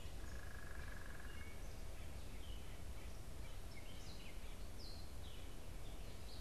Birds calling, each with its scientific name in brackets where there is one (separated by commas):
unidentified bird, Gray Catbird (Dumetella carolinensis)